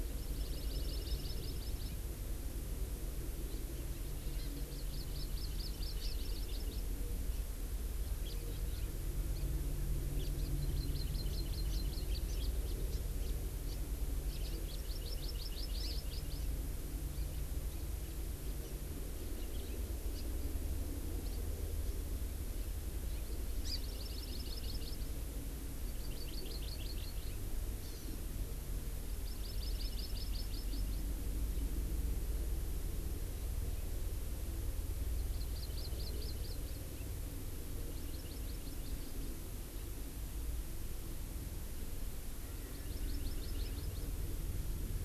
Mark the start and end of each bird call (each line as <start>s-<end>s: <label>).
0.0s-1.9s: Hawaii Amakihi (Chlorodrepanis virens)
4.3s-6.9s: Hawaii Amakihi (Chlorodrepanis virens)
7.3s-7.4s: Hawaii Amakihi (Chlorodrepanis virens)
8.2s-8.4s: House Finch (Haemorhous mexicanus)
8.7s-8.8s: House Finch (Haemorhous mexicanus)
9.3s-9.5s: Hawaii Amakihi (Chlorodrepanis virens)
10.2s-13.3s: Hawaii Amakihi (Chlorodrepanis virens)
13.7s-13.8s: Hawaii Amakihi (Chlorodrepanis virens)
14.6s-16.5s: Hawaii Amakihi (Chlorodrepanis virens)
23.6s-25.1s: Hawaii Amakihi (Chlorodrepanis virens)
25.8s-27.4s: Hawaii Amakihi (Chlorodrepanis virens)
27.8s-28.2s: Hawaii Amakihi (Chlorodrepanis virens)
29.0s-31.1s: Hawaii Amakihi (Chlorodrepanis virens)
35.1s-36.8s: Hawaii Amakihi (Chlorodrepanis virens)
37.8s-39.3s: Hawaii Amakihi (Chlorodrepanis virens)
42.4s-44.1s: Erckel's Francolin (Pternistis erckelii)
42.6s-44.1s: Hawaii Amakihi (Chlorodrepanis virens)